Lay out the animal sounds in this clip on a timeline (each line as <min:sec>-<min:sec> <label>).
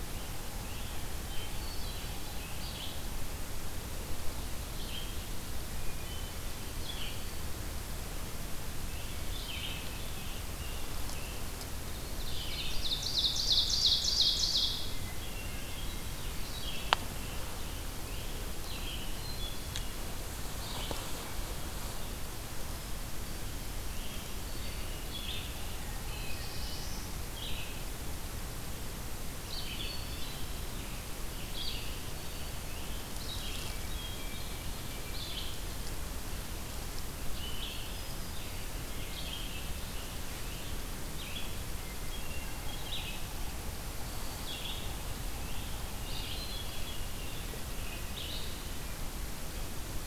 0:00.0-0:02.7 Scarlet Tanager (Piranga olivacea)
0:01.2-0:02.4 Hermit Thrush (Catharus guttatus)
0:02.5-0:10.1 Red-eyed Vireo (Vireo olivaceus)
0:05.7-0:07.2 Hermit Thrush (Catharus guttatus)
0:08.7-0:11.5 Scarlet Tanager (Piranga olivacea)
0:11.9-0:15.1 Ovenbird (Seiurus aurocapilla)
0:14.9-0:17.0 Hermit Thrush (Catharus guttatus)
0:16.6-0:19.1 Scarlet Tanager (Piranga olivacea)
0:18.4-0:46.9 Red-eyed Vireo (Vireo olivaceus)
0:18.8-0:20.3 Hermit Thrush (Catharus guttatus)
0:25.3-0:27.6 Yellow-bellied Sapsucker (Sphyrapicus varius)
0:25.9-0:27.2 Black-throated Blue Warbler (Setophaga caerulescens)
0:29.2-0:30.7 Hermit Thrush (Catharus guttatus)
0:30.2-0:33.3 Scarlet Tanager (Piranga olivacea)
0:33.4-0:35.3 Hermit Thrush (Catharus guttatus)
0:37.7-0:40.9 Scarlet Tanager (Piranga olivacea)
0:41.6-0:43.1 Hermit Thrush (Catharus guttatus)
0:42.3-0:46.4 Yellow-bellied Sapsucker (Sphyrapicus varius)
0:44.9-0:48.2 Scarlet Tanager (Piranga olivacea)
0:45.9-0:47.1 Hermit Thrush (Catharus guttatus)
0:47.7-0:50.1 Red-eyed Vireo (Vireo olivaceus)